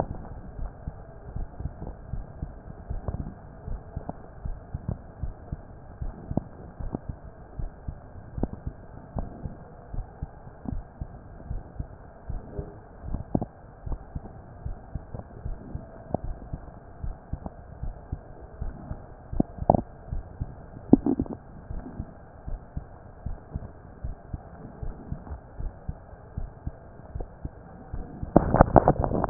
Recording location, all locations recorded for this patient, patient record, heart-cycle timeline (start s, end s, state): mitral valve (MV)
aortic valve (AV)+pulmonary valve (PV)+tricuspid valve (TV)+mitral valve (MV)
#Age: Adolescent
#Sex: Male
#Height: nan
#Weight: nan
#Pregnancy status: False
#Murmur: Absent
#Murmur locations: nan
#Most audible location: nan
#Systolic murmur timing: nan
#Systolic murmur shape: nan
#Systolic murmur grading: nan
#Systolic murmur pitch: nan
#Systolic murmur quality: nan
#Diastolic murmur timing: nan
#Diastolic murmur shape: nan
#Diastolic murmur grading: nan
#Diastolic murmur pitch: nan
#Diastolic murmur quality: nan
#Outcome: Abnormal
#Campaign: 2015 screening campaign
0.00	21.66	unannotated
21.66	21.84	S1
21.84	21.97	systole
21.97	22.08	S2
22.08	22.45	diastole
22.45	22.60	S1
22.60	22.72	systole
22.72	22.86	S2
22.86	23.23	diastole
23.23	23.38	S1
23.38	23.51	systole
23.51	23.68	S2
23.68	24.02	diastole
24.02	24.16	S1
24.16	24.29	systole
24.29	24.42	S2
24.42	24.79	diastole
24.79	24.98	S1
24.98	25.10	systole
25.10	25.20	S2
25.20	25.58	diastole
25.58	25.74	S1
25.74	25.84	systole
25.84	25.98	S2
25.98	26.36	diastole
26.36	26.50	S1
26.50	26.62	systole
26.62	26.76	S2
26.76	27.10	diastole
27.10	27.28	S1
27.28	27.40	systole
27.40	27.54	S2
27.54	27.87	diastole
27.87	28.08	S1
28.08	29.30	unannotated